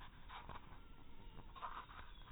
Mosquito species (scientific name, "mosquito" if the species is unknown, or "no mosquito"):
mosquito